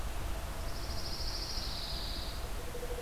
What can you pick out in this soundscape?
Pine Warbler